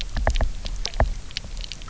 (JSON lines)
{"label": "biophony, knock", "recorder": "SoundTrap 300"}